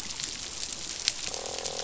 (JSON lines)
{"label": "biophony, croak", "recorder": "SoundTrap 500"}